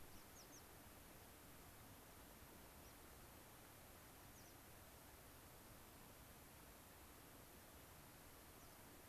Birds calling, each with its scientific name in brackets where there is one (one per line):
American Pipit (Anthus rubescens)